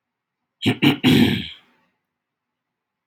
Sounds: Throat clearing